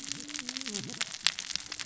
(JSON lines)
{"label": "biophony, cascading saw", "recorder": "SoundTrap 600 or HydroMoth"}